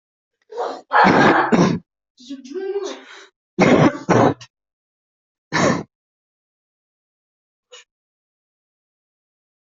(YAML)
expert_labels:
- quality: good
  cough_type: wet
  dyspnea: false
  wheezing: false
  stridor: false
  choking: false
  congestion: false
  nothing: true
  diagnosis: lower respiratory tract infection
  severity: severe
gender: male
respiratory_condition: false
fever_muscle_pain: false
status: healthy